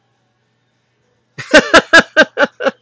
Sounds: Laughter